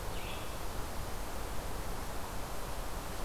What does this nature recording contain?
Red-eyed Vireo